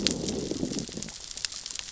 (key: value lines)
label: biophony, growl
recorder: SoundTrap 600 or HydroMoth